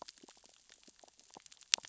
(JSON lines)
{"label": "biophony, sea urchins (Echinidae)", "recorder": "SoundTrap 600 or HydroMoth"}